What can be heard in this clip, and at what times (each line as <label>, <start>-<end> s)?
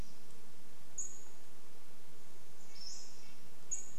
Pacific-slope Flycatcher call, 0-4 s
insect buzz, 0-4 s
Red-breasted Nuthatch song, 2-4 s